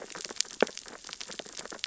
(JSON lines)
{"label": "biophony, sea urchins (Echinidae)", "recorder": "SoundTrap 600 or HydroMoth"}